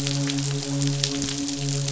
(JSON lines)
{"label": "biophony, midshipman", "recorder": "SoundTrap 500"}